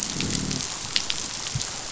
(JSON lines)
{"label": "biophony, growl", "recorder": "SoundTrap 500"}